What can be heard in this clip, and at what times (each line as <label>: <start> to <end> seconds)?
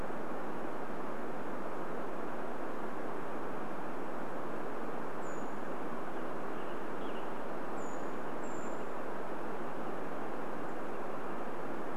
Brown Creeper call: 4 to 10 seconds
Western Tanager song: 6 to 8 seconds
Northern Flicker call: 8 to 12 seconds